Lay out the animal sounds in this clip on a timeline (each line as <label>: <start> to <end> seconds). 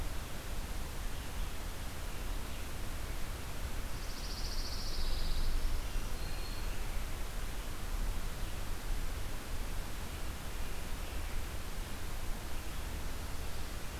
Pine Warbler (Setophaga pinus): 3.8 to 5.7 seconds
Black-throated Green Warbler (Setophaga virens): 5.4 to 7.0 seconds